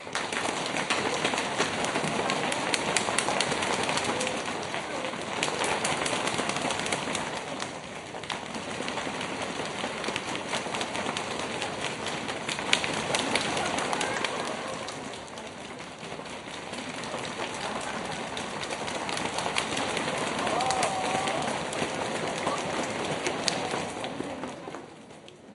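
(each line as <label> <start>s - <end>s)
People clapping reverberates. 0.0s - 25.5s
People are talking in the background. 14.1s - 25.5s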